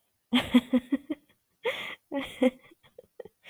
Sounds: Laughter